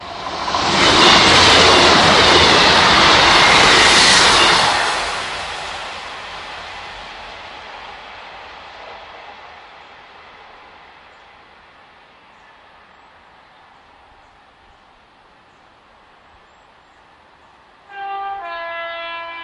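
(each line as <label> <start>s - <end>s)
A train approaches with increasing volume, then fades away gradually. 0.0s - 9.8s
A train horn sounds loudly. 17.8s - 19.4s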